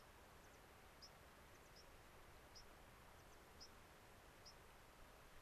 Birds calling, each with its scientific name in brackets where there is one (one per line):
American Pipit (Anthus rubescens)
White-crowned Sparrow (Zonotrichia leucophrys)